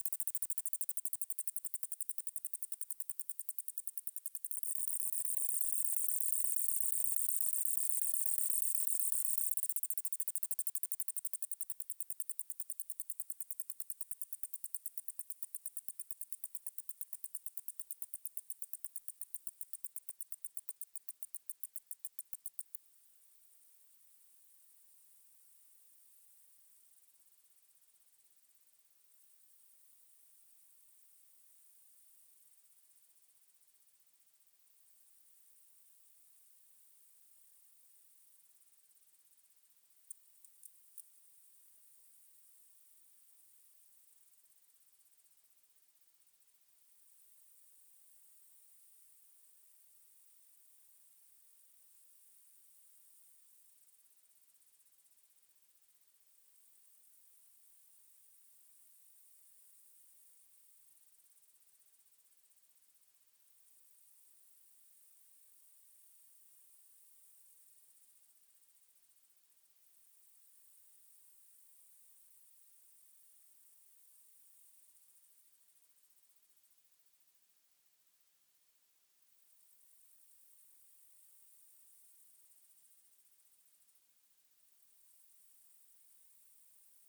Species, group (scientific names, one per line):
Conocephalus dorsalis
Orthoptera